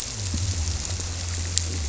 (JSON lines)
{"label": "biophony", "recorder": "SoundTrap 300"}